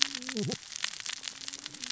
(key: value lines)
label: biophony, cascading saw
recorder: SoundTrap 600 or HydroMoth